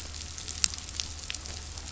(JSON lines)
{"label": "anthrophony, boat engine", "recorder": "SoundTrap 500"}